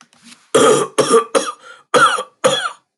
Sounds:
Cough